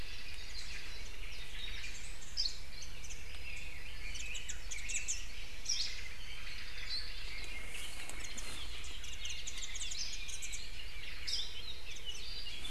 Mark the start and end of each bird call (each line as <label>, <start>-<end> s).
Hawaii Creeper (Loxops mana), 2.3-2.6 s
Warbling White-eye (Zosterops japonicus), 3.0-3.8 s
Red-billed Leiothrix (Leiothrix lutea), 3.4-5.3 s
Warbling White-eye (Zosterops japonicus), 4.1-5.3 s
Hawaii Akepa (Loxops coccineus), 5.6-6.0 s
Warbling White-eye (Zosterops japonicus), 8.0-8.5 s
Warbling White-eye (Zosterops japonicus), 8.8-10.6 s
Hawaii Akepa (Loxops coccineus), 11.2-11.6 s
Warbling White-eye (Zosterops japonicus), 11.8-12.3 s